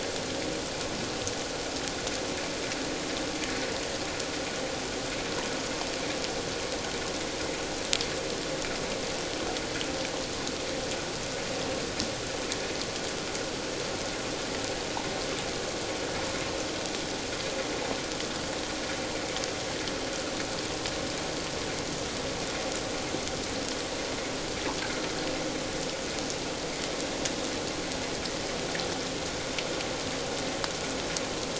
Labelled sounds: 24.8	25.1	vessel noise, 1.3 to 1.7 kHz

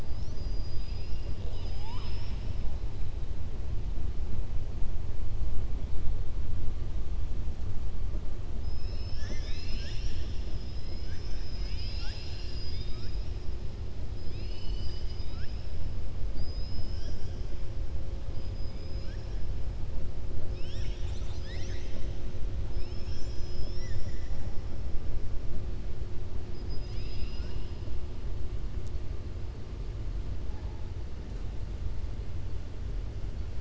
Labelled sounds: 0.0	2.6	killer whale, southern resident, 0.89 to 8.0 kHz
14.2	15.7	killer whale, southern resident, 1.3 to 6.0 kHz
18.5	19.3	killer whale, southern resident, 4.1 to 5.6 kHz
26.5	27.8	killer whale, southern resident, 1.1 to 6.3 kHz

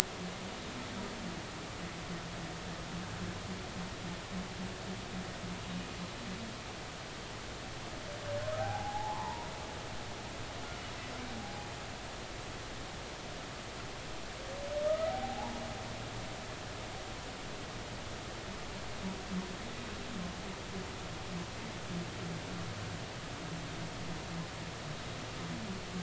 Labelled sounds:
8.6	9.5	humpback whale, 0.80 to 1.2 kHz
11.4	11.7	humpback whale, 0.80 to 0.86 kHz
14.9	15.6	humpback whale, 0.80 to 1.4 kHz

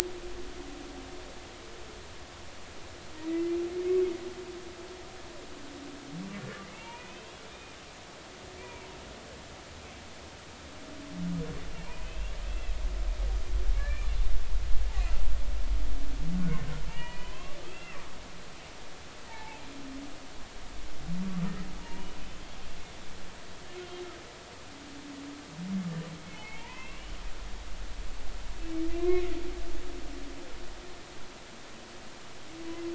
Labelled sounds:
3.2	4.0	humpback whale, 1.8 to 2.2 kHz
6.7	7.8	humpback whale, 0.86 to 2.9 kHz
8.6	8.9	humpback whale, 2.2 to 2.5 kHz
11.8	12.8	humpback whale, 2.2 to 3.4 kHz
13.8	14.1	humpback whale, 1.6 to 2.5 kHz
16.3	18.0	humpback whale, 0.86 to 3.3 kHz
19.3	19.6	humpback whale, 0.80 to 2.3 kHz
21.8	22.1	humpback whale, 0.86 to 1.0 kHz
26.3	27.2	humpback whale, 0.83 to 3.1 kHz
29.0	29.4	humpback whale, 1.9 to 2.2 kHz

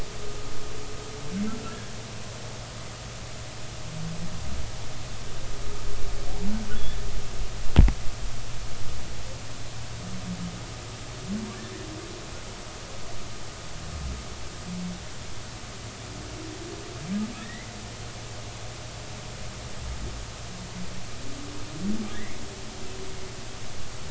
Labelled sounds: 17.4	17.7	humpback whale, 1.6 to 2.2 kHz
22.1	22.4	humpback whale, 1.6 to 2.3 kHz

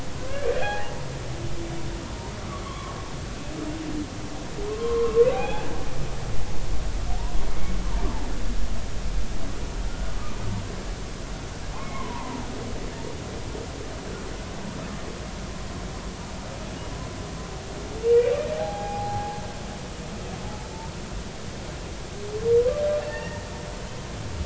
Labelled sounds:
0.3	0.9	humpback whale, 0.80 to 2.5 kHz
2.6	3.0	humpback whale, 0.99 to 1.2 kHz
4.7	5.7	humpback whale, 0.80 to 2.6 kHz
7.5	7.7	humpback whale, 2.1 to 2.3 kHz
11.8	12.4	humpback whale, 0.86 to 2.2 kHz
18.0	19.4	humpback whale, 0.80 to 2.5 kHz
23.1	23.5	humpback whale, 1.7 to 1.9 kHz

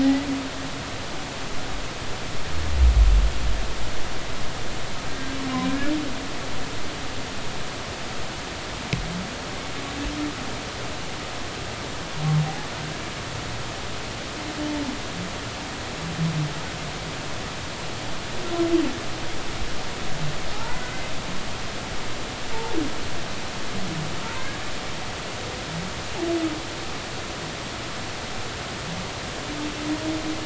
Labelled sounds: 0.0	0.3	humpback whale, 1.8 to 2.0 kHz
5.7	5.9	humpback whale, 1.5 to 1.8 kHz
20.5	21.1	humpback whale, 0.80 to 2.1 kHz
24.2	24.5	humpback whale, 0.86 to 1.1 kHz

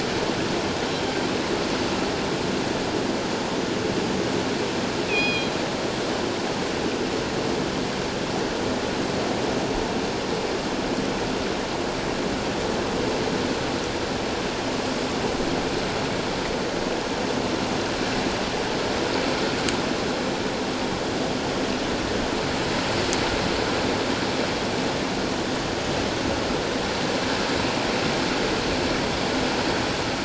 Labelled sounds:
5.1	5.6	killer whale, northern resident, G clan, 2.4 to 4.2 kHz

